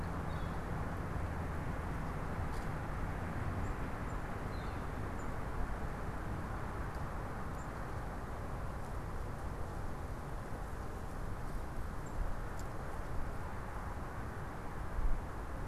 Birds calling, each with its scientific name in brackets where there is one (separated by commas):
Black-capped Chickadee (Poecile atricapillus), Northern Flicker (Colaptes auratus)